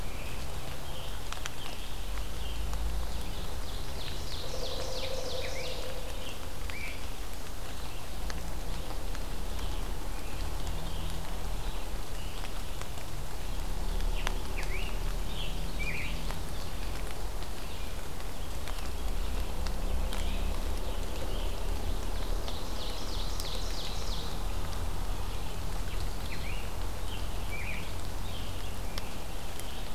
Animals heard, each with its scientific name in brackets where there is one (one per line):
Great Crested Flycatcher (Myiarchus crinitus)
Pileated Woodpecker (Dryocopus pileatus)
Scarlet Tanager (Piranga olivacea)
Ovenbird (Seiurus aurocapilla)